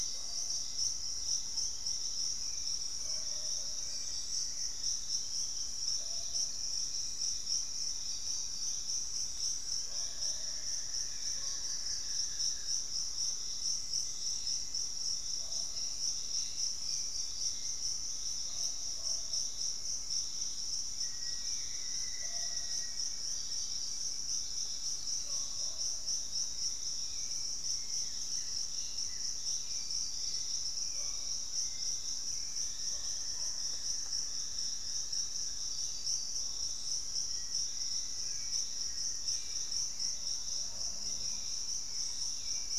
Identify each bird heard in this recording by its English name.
unidentified bird, Hauxwell's Thrush, Fasciated Antshrike, Black-faced Antthrush, Piratic Flycatcher, Buff-throated Woodcreeper, Thrush-like Wren